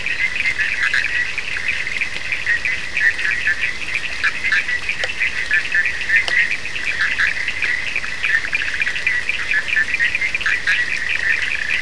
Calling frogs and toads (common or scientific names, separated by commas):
Bischoff's tree frog, Cochran's lime tree frog